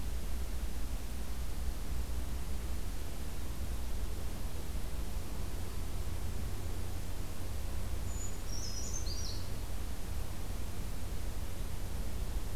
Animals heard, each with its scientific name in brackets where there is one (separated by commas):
Brown Creeper (Certhia americana)